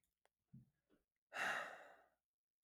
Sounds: Sigh